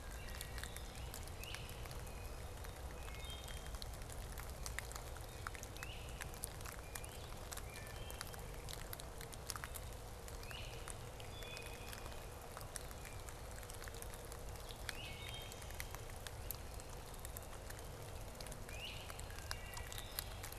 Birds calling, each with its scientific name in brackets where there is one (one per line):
Blue Jay (Cyanocitta cristata)
Great Crested Flycatcher (Myiarchus crinitus)
Black-capped Chickadee (Poecile atricapillus)
Wood Thrush (Hylocichla mustelina)
Blue-headed Vireo (Vireo solitarius)